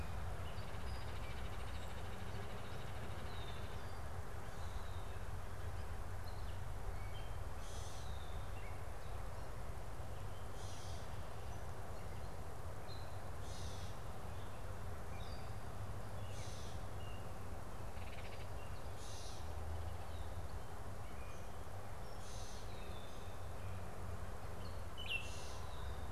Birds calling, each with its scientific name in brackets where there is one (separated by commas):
Baltimore Oriole (Icterus galbula), Gray Catbird (Dumetella carolinensis)